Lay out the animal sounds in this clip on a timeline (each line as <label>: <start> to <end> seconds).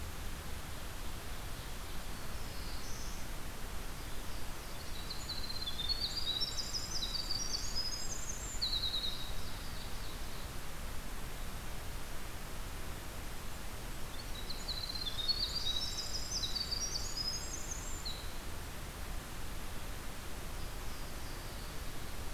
Black-throated Blue Warbler (Setophaga caerulescens): 1.9 to 3.3 seconds
Winter Wren (Troglodytes hiemalis): 4.4 to 9.4 seconds
Ovenbird (Seiurus aurocapilla): 8.8 to 10.5 seconds
Winter Wren (Troglodytes hiemalis): 13.4 to 18.6 seconds
Black-throated Blue Warbler (Setophaga caerulescens): 20.3 to 21.9 seconds